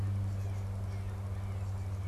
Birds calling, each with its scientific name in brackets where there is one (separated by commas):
Blue Jay (Cyanocitta cristata)